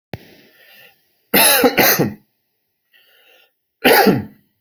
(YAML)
expert_labels:
- quality: good
  cough_type: dry
  dyspnea: false
  wheezing: false
  stridor: false
  choking: false
  congestion: false
  nothing: true
  diagnosis: COVID-19
  severity: mild
age: 41
gender: male
respiratory_condition: false
fever_muscle_pain: false
status: symptomatic